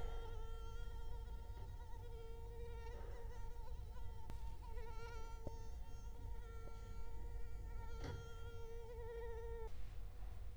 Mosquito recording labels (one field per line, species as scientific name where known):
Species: Culex quinquefasciatus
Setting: cup